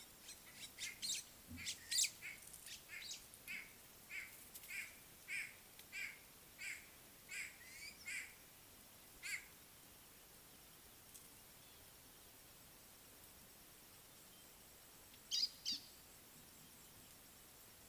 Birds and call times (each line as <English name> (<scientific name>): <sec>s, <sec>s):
White-browed Sparrow-Weaver (Plocepasser mahali): 1.1s
White-bellied Go-away-bird (Corythaixoides leucogaster): 3.6s, 6.7s
Gray-backed Camaroptera (Camaroptera brevicaudata): 15.4s